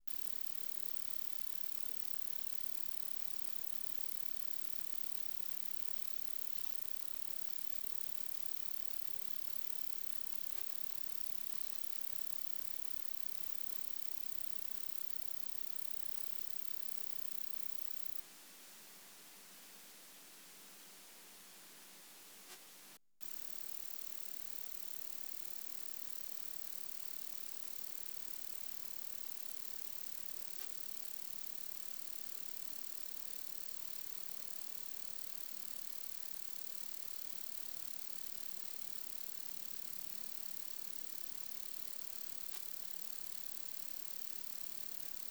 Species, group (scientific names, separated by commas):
Anelytra tristellata, Orthoptera